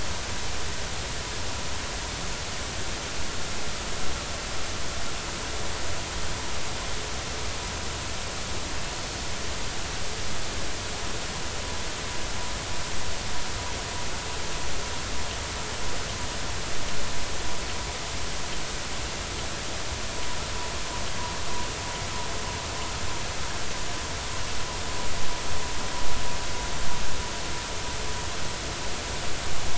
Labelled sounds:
9.1	9.3	small unidentified odontocete, 4.3 to 4.5 kHz

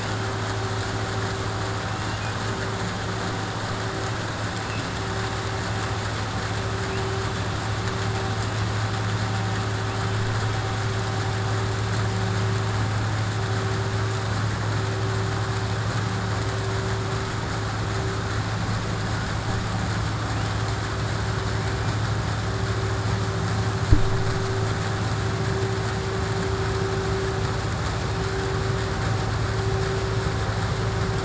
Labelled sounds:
2.0	2.3	killer whale, 1.9 to 3.6 kHz

